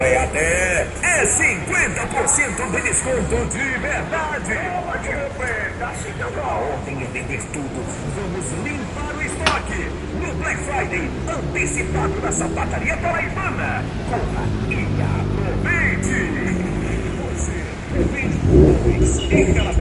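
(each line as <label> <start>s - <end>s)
An engine hums quietly. 0.0s - 10.0s
A quiet humming noise. 0.0s - 19.8s
An audio advertisement plays loudly and slowly fades away. 0.0s - 19.8s
A loud clicking sound. 9.3s - 9.7s
An engine is running outdoors. 10.0s - 17.9s
An engine revs. 17.9s - 19.8s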